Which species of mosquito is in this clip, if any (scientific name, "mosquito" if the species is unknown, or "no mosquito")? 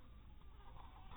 mosquito